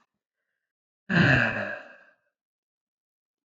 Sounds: Sigh